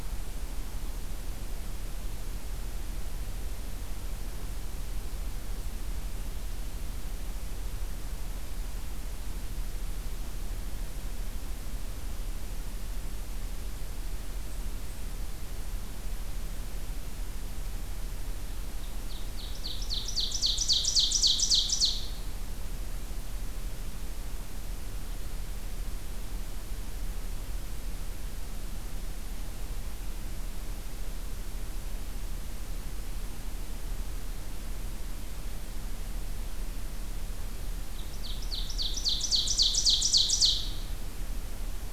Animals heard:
Ovenbird (Seiurus aurocapilla)

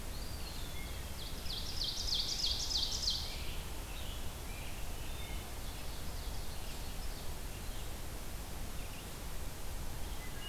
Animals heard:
Red-eyed Vireo (Vireo olivaceus), American Robin (Turdus migratorius), Eastern Wood-Pewee (Contopus virens), Ovenbird (Seiurus aurocapilla)

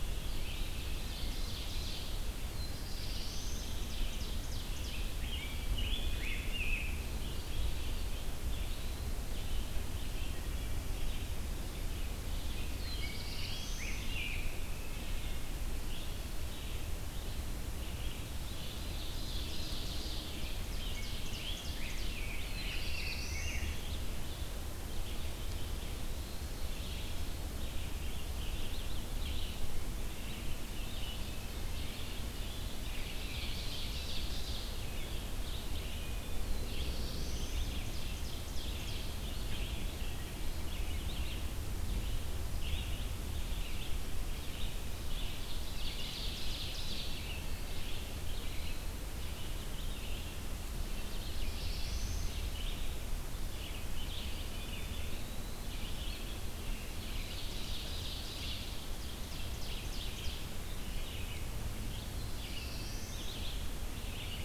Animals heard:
Rose-breasted Grosbeak (Pheucticus ludovicianus), Wood Thrush (Hylocichla mustelina), Red-eyed Vireo (Vireo olivaceus), Eastern Wood-Pewee (Contopus virens), Black-throated Blue Warbler (Setophaga caerulescens), Ovenbird (Seiurus aurocapilla)

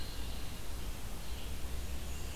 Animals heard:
Red-eyed Vireo (Vireo olivaceus), Black-and-white Warbler (Mniotilta varia)

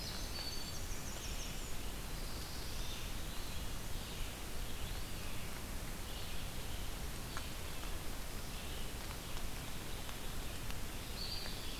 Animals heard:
Black-throated Blue Warbler (Setophaga caerulescens), Winter Wren (Troglodytes hiemalis), Eastern Wood-Pewee (Contopus virens), Red-eyed Vireo (Vireo olivaceus)

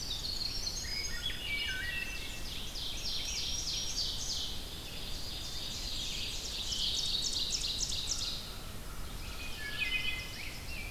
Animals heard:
Black-throated Green Warbler (Setophaga virens), American Crow (Corvus brachyrhynchos), Wood Thrush (Hylocichla mustelina), Winter Wren (Troglodytes hiemalis), Rose-breasted Grosbeak (Pheucticus ludovicianus), Ovenbird (Seiurus aurocapilla)

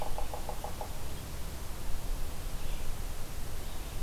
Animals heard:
Yellow-bellied Sapsucker (Sphyrapicus varius), Red-eyed Vireo (Vireo olivaceus)

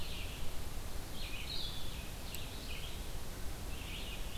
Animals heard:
Red-eyed Vireo (Vireo olivaceus), Blue-headed Vireo (Vireo solitarius)

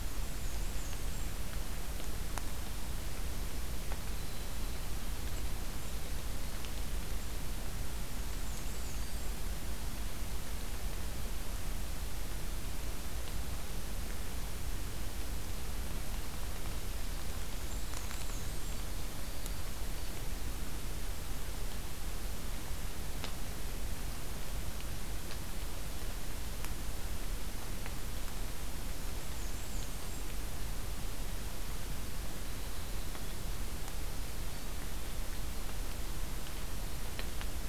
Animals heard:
Black-and-white Warbler (Mniotilta varia), Black-throated Green Warbler (Setophaga virens), Winter Wren (Troglodytes hiemalis)

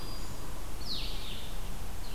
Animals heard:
Blue-headed Vireo (Vireo solitarius)

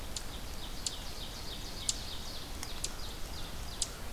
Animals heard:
Ovenbird (Seiurus aurocapilla), American Crow (Corvus brachyrhynchos)

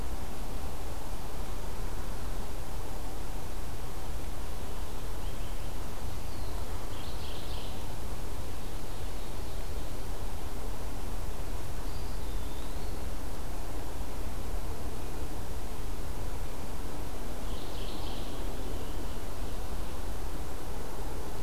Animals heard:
Mourning Warbler (Geothlypis philadelphia), Ovenbird (Seiurus aurocapilla), Eastern Wood-Pewee (Contopus virens)

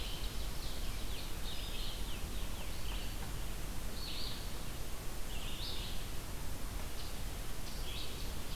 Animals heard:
Red-eyed Vireo (Vireo olivaceus), unidentified call

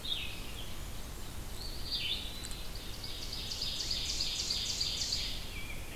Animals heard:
Red-eyed Vireo (Vireo olivaceus), Eastern Wood-Pewee (Contopus virens), Ovenbird (Seiurus aurocapilla), Blackburnian Warbler (Setophaga fusca), Rose-breasted Grosbeak (Pheucticus ludovicianus)

